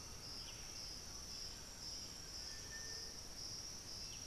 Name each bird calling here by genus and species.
Crypturellus undulatus, Tapera naevia, unidentified bird